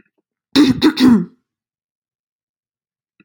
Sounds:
Throat clearing